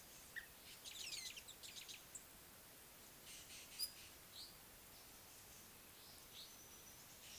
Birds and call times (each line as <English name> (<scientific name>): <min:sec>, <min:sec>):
Rufous Chatterer (Argya rubiginosa): 0:01.2